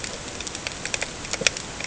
{"label": "ambient", "recorder": "HydroMoth"}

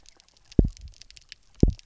{"label": "biophony, double pulse", "recorder": "SoundTrap 300"}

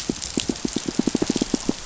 {"label": "biophony, pulse", "recorder": "SoundTrap 500"}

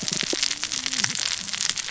{"label": "biophony, cascading saw", "recorder": "SoundTrap 600 or HydroMoth"}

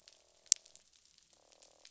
{"label": "biophony, croak", "recorder": "SoundTrap 500"}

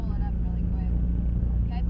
{"label": "anthrophony, boat engine", "recorder": "SoundTrap 300"}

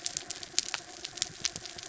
{"label": "anthrophony, mechanical", "recorder": "SoundTrap 300"}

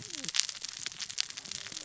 {"label": "biophony, cascading saw", "recorder": "SoundTrap 600 or HydroMoth"}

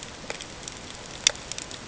{"label": "ambient", "recorder": "HydroMoth"}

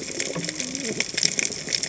{"label": "biophony, cascading saw", "recorder": "HydroMoth"}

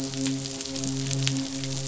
{"label": "biophony, midshipman", "recorder": "SoundTrap 500"}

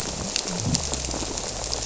{"label": "biophony", "recorder": "SoundTrap 300"}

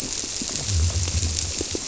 {"label": "biophony", "recorder": "SoundTrap 300"}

